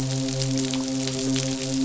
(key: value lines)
label: biophony, midshipman
recorder: SoundTrap 500